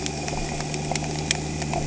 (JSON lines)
{"label": "anthrophony, boat engine", "recorder": "HydroMoth"}